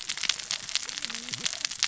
{"label": "biophony, cascading saw", "recorder": "SoundTrap 600 or HydroMoth"}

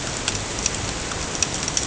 {"label": "ambient", "recorder": "HydroMoth"}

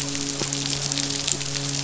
{"label": "biophony, midshipman", "recorder": "SoundTrap 500"}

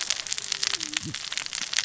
{"label": "biophony, cascading saw", "recorder": "SoundTrap 600 or HydroMoth"}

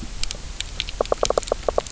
{"label": "biophony, knock", "recorder": "SoundTrap 300"}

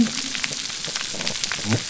{"label": "biophony", "recorder": "SoundTrap 300"}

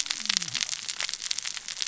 {"label": "biophony, cascading saw", "recorder": "SoundTrap 600 or HydroMoth"}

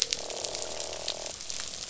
{"label": "biophony, croak", "recorder": "SoundTrap 500"}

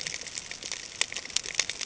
{"label": "ambient", "recorder": "HydroMoth"}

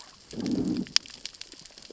{"label": "biophony, growl", "recorder": "SoundTrap 600 or HydroMoth"}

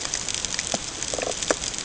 {"label": "ambient", "recorder": "HydroMoth"}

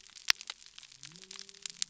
{"label": "biophony", "recorder": "SoundTrap 300"}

